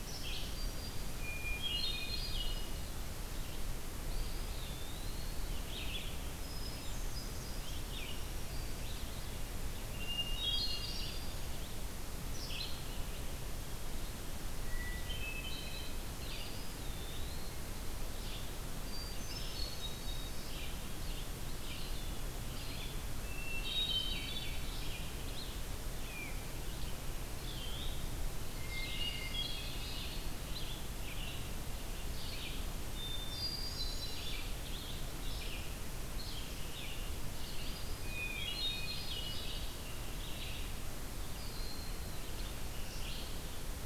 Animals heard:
Black-throated Green Warbler (Setophaga virens)
Red-eyed Vireo (Vireo olivaceus)
Eastern Wood-Pewee (Contopus virens)
Hermit Thrush (Catharus guttatus)

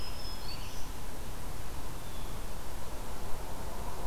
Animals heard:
Blue Jay (Cyanocitta cristata)
Scarlet Tanager (Piranga olivacea)
Black-throated Green Warbler (Setophaga virens)

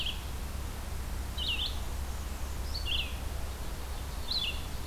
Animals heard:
Ovenbird (Seiurus aurocapilla)
Red-eyed Vireo (Vireo olivaceus)
Black-and-white Warbler (Mniotilta varia)

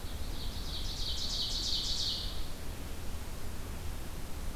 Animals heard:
Ovenbird (Seiurus aurocapilla)

